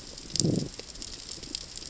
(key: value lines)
label: biophony, growl
recorder: SoundTrap 600 or HydroMoth